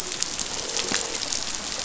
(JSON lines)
{"label": "biophony, croak", "recorder": "SoundTrap 500"}